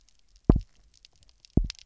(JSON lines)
{"label": "biophony, double pulse", "recorder": "SoundTrap 300"}